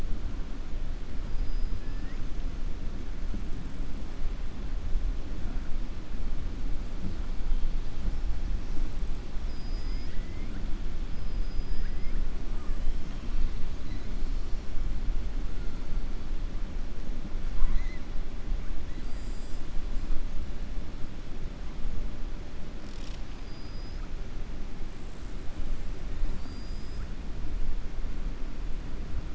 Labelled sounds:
1.8	2.2	killer whale, southern resident, 1.1 to 2.7 kHz
9.4	10.6	killer whale, southern resident, 1.4 to 5.9 kHz
11.7	12.2	killer whale, southern resident, 1.5 to 2.4 kHz
23.3	23.9	killer whale, southern resident, 4.0 to 5.1 kHz
26.3	27.0	killer whale, southern resident, 4.0 to 5.2 kHz

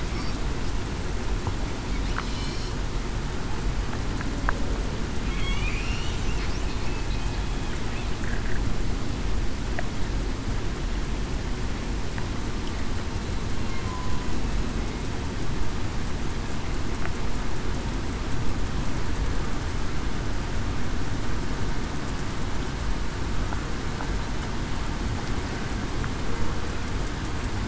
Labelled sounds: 5.3	5.9	killer whale, southern resident, 2.1 to 2.7 kHz
13.8	14.3	killer whale, southern resident, 0.96 to 1.0 kHz

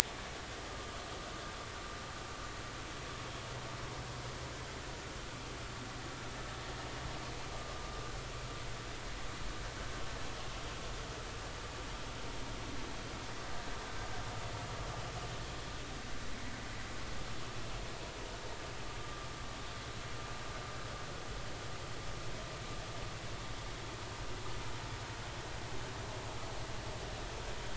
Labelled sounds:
20.0	20.3	vessel noise, 1.15 to 1.25 kHz

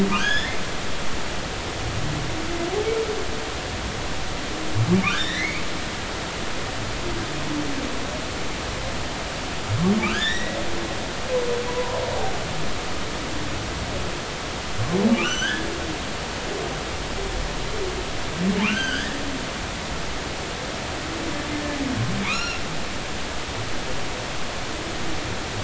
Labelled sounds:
0.1	0.6	humpback whale, 1.4 to 6.8 kHz
5.1	5.7	humpback whale, 1.3 to 5.9 kHz
10.1	10.6	humpback whale, 1.4 to 3.9 kHz
11.7	12.0	humpback whale, 0.90 to 1.1 kHz
15.1	15.7	humpback whale, 1.3 to 6.2 kHz
18.6	19.2	humpback whale, 0.99 to 6.3 kHz
22.2	22.6	humpback whale, 0.80 to 5.7 kHz

